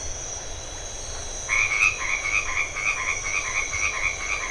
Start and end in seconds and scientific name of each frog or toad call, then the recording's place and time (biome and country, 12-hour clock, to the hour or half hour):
1.4	4.5	Boana albomarginata
Atlantic Forest, Brazil, 8:30pm